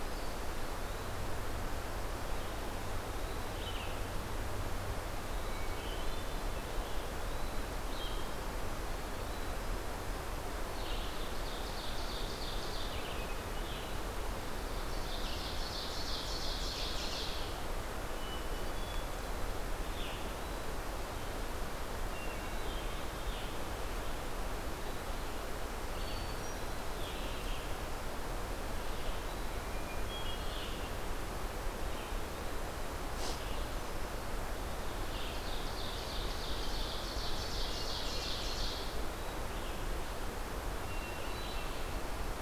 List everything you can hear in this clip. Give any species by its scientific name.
Catharus guttatus, Vireo olivaceus, Contopus virens, Seiurus aurocapilla